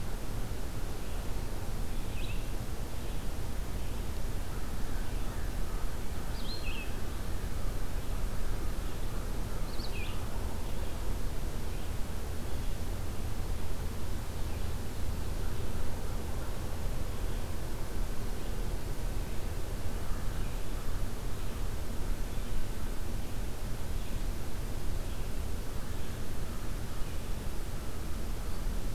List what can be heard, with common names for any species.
Red-eyed Vireo, American Crow